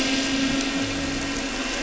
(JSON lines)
{"label": "anthrophony, boat engine", "recorder": "SoundTrap 300"}
{"label": "biophony", "recorder": "SoundTrap 300"}